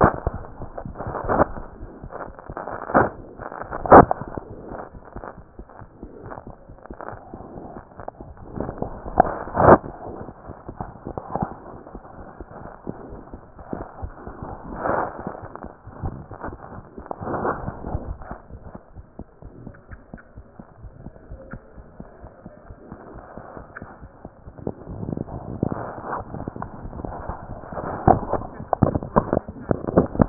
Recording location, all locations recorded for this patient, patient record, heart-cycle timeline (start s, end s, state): aortic valve (AV)
aortic valve (AV)+mitral valve (MV)
#Age: Infant
#Sex: Male
#Height: 68.0 cm
#Weight: 7.3 kg
#Pregnancy status: False
#Murmur: Unknown
#Murmur locations: nan
#Most audible location: nan
#Systolic murmur timing: nan
#Systolic murmur shape: nan
#Systolic murmur grading: nan
#Systolic murmur pitch: nan
#Systolic murmur quality: nan
#Diastolic murmur timing: nan
#Diastolic murmur shape: nan
#Diastolic murmur grading: nan
#Diastolic murmur pitch: nan
#Diastolic murmur quality: nan
#Outcome: Normal
#Campaign: 2015 screening campaign
0.00	20.64	unannotated
20.64	20.82	diastole
20.82	20.92	S1
20.92	21.04	systole
21.04	21.14	S2
21.14	21.30	diastole
21.30	21.37	S1
21.37	21.51	systole
21.51	21.58	S2
21.58	21.76	diastole
21.76	21.86	S1
21.86	21.98	systole
21.98	22.08	S2
22.08	22.23	diastole
22.23	22.30	S1
22.30	22.43	systole
22.43	22.52	S2
22.52	22.68	diastole
22.68	22.75	S1
22.75	22.91	systole
22.91	22.95	S2
22.95	23.14	diastole
23.14	23.21	S1
23.21	23.35	systole
23.35	23.40	S2
23.40	23.56	diastole
23.56	23.60	S1
23.60	23.79	systole
23.79	23.86	S2
23.86	24.01	diastole
24.01	24.10	S1
24.10	24.24	systole
24.24	24.29	S2
24.29	24.46	diastole
24.46	24.51	S1
24.51	30.29	unannotated